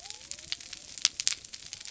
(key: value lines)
label: biophony
recorder: SoundTrap 300